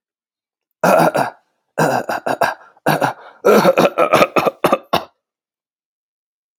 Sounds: Cough